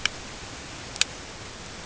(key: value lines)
label: ambient
recorder: HydroMoth